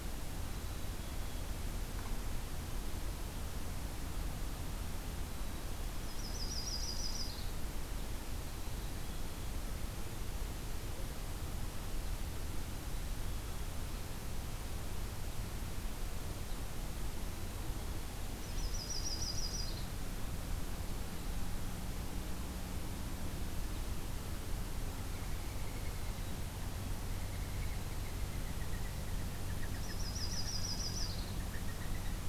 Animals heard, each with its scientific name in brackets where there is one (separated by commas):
Mourning Dove (Zenaida macroura), Yellow-rumped Warbler (Setophaga coronata), Black-capped Chickadee (Poecile atricapillus)